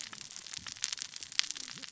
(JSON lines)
{"label": "biophony, cascading saw", "recorder": "SoundTrap 600 or HydroMoth"}